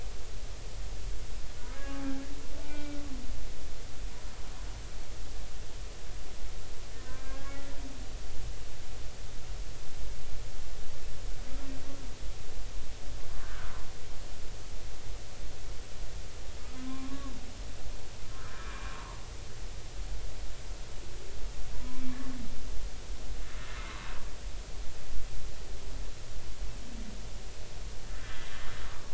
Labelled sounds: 1.8	2.0	humpback whale, 1.1 to 1.2 kHz
2.6	3.0	humpback whale, 0.83 to 2.4 kHz
7.0	7.6	humpback whale, 1.5 to 2.5 kHz
13.4	13.7	humpback whale, 1.2 to 1.7 kHz
16.7	17.3	humpback whale, 0.99 to 1.2 kHz
18.4	18.7	humpback whale, 1.5 to 1.9 kHz
21.8	22.1	humpback whale, 2.2 to 2.4 kHz
28.2	28.6	humpback whale, 3.2 to 3.4 kHz

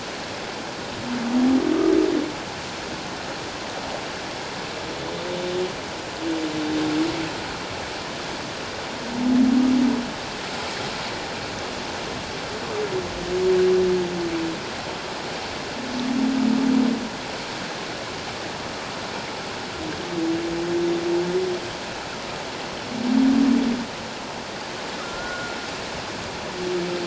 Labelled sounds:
25.0	25.6	humpback whale, 1.3 to 1.5 kHz

